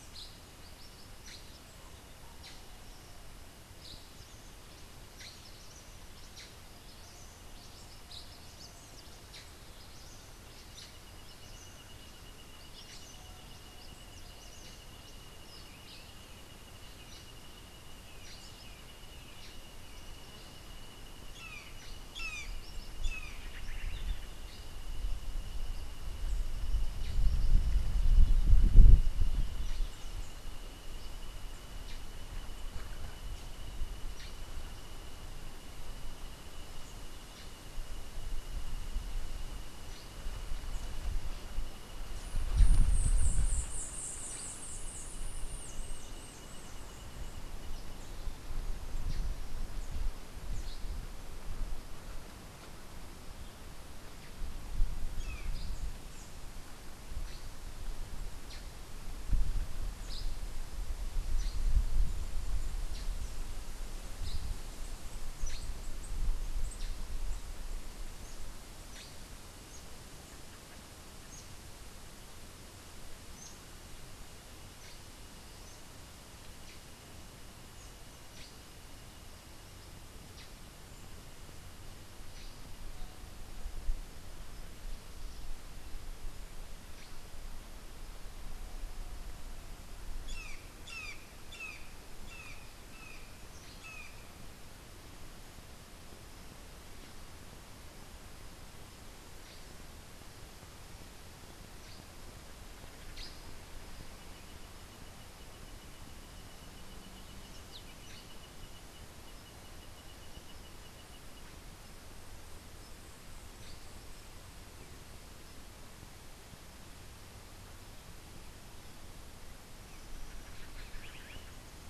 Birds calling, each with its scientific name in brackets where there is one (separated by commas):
Black-headed Saltator (Saltator atriceps), Brown Jay (Psilorhinus morio), Cabanis's Wren (Cantorchilus modestus), White-eared Ground-Sparrow (Melozone leucotis)